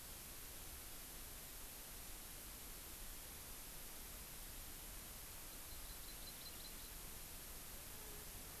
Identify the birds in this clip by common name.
Hawaii Amakihi